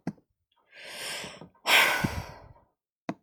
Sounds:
Sigh